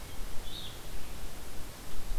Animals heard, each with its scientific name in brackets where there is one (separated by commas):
Red-eyed Vireo (Vireo olivaceus)